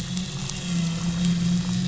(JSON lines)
{"label": "anthrophony, boat engine", "recorder": "SoundTrap 500"}